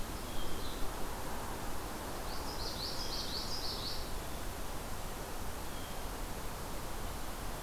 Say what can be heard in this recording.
Hermit Thrush, Common Yellowthroat